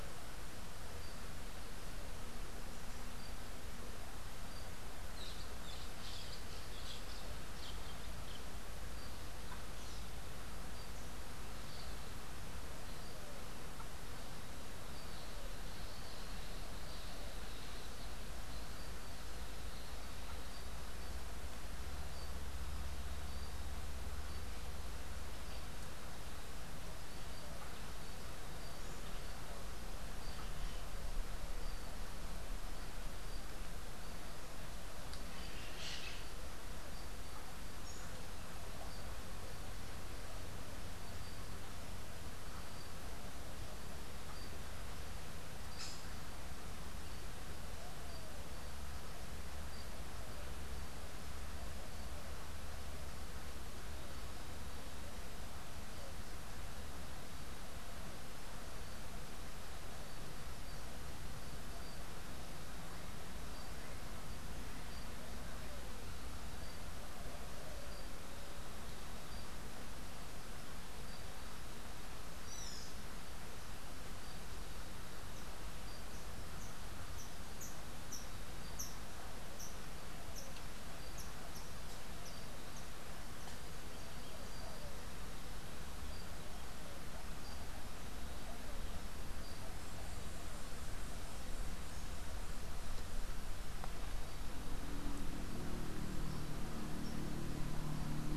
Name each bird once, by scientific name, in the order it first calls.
Megarynchus pitangua, Piaya cayana, unidentified bird, Amazilia tzacatl